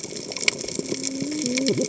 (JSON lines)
{"label": "biophony, cascading saw", "recorder": "HydroMoth"}